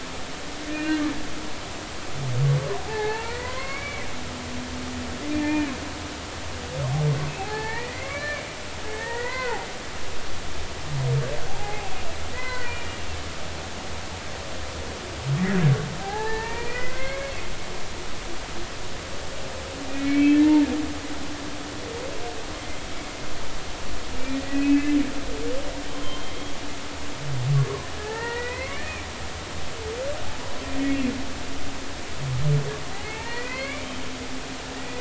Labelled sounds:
0.7	1.0	humpback whale, 1.5 to 1.9 kHz
2.8	4.1	humpback whale, 0.80 to 4.5 kHz
5.3	5.7	humpback whale, 0.86 to 2.5 kHz
7.4	9.6	humpback whale, 0.80 to 4.5 kHz
11.5	11.9	humpback whale, 0.80 to 0.93 kHz
12.3	12.9	humpback whale, 0.96 to 4.6 kHz
16.0	17.3	humpback whale, 0.80 to 2.6 kHz
19.9	20.7	humpback whale, 0.86 to 2.5 kHz
24.4	25.0	humpback whale, 1.7 to 2.7 kHz
25.9	26.3	humpback whale, 0.99 to 3.3 kHz
28.0	29.1	humpback whale, 0.80 to 2.6 kHz
32.9	33.9	humpback whale, 0.83 to 3.0 kHz
34.8	34.9	humpback whale, 1.8 to 2.0 kHz

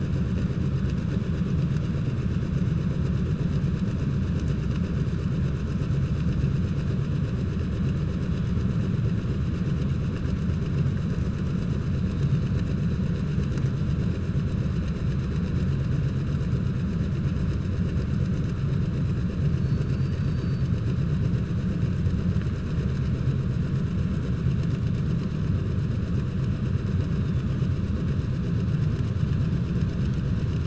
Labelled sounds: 19.5	20.7	killer whale, southern resident, 3.7 to 5.9 kHz

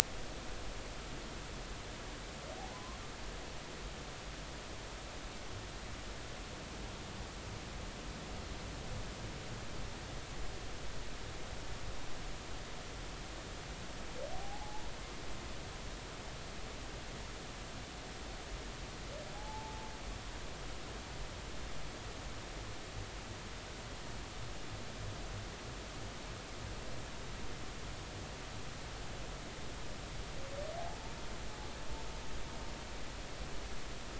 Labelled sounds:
2.7	3.0	humpback whale, 0.96 to 1.2 kHz
14.3	14.8	humpback whale, 0.80 to 0.93 kHz
19.3	19.9	humpback whale, 0.80 to 0.93 kHz

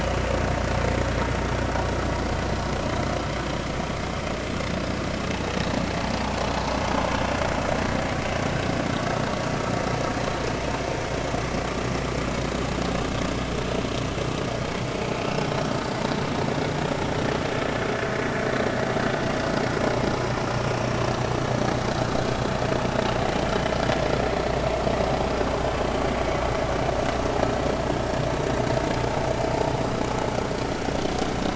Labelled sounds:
23.5	23.7	vessel noise, 2.9 to 3.2 kHz

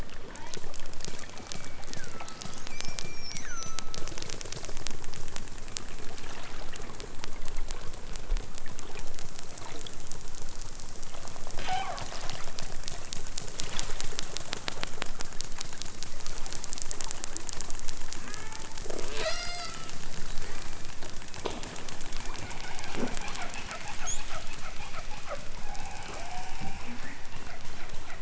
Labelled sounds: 0.3	0.7	killer whale, southern Alaska resident, 0.83 to 6.1 kHz
1.0	4.1	killer whale, southern Alaska resident, 0.87 to 8.0 kHz
11.5	12.2	killer whale, southern Alaska resident, 0.37 to 4.6 kHz
16.9	17.2	killer whale, southern Alaska resident, 0.37 to 2.1 kHz
18.2	18.7	killer whale, southern Alaska resident, 0.55 to 3.3 kHz
19.1	19.8	killer whale, southern Alaska resident, 0.37 to 8.0 kHz
20.3	20.9	killer whale, southern Alaska resident, 0.83 to 3.7 kHz
25.6	26.7	killer whale, southern Alaska resident, 0.41 to 3.1 kHz

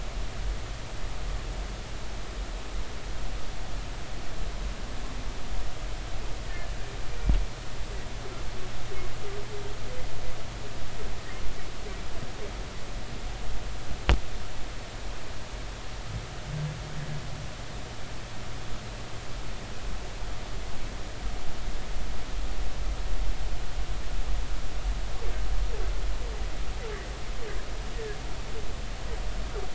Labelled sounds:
6.5	6.7	humpback whale, 1.7 to 1.9 kHz

